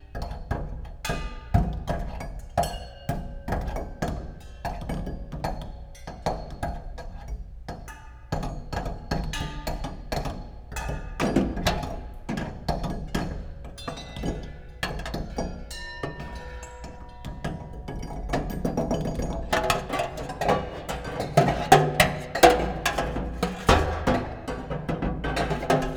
Is there a singer in the band?
no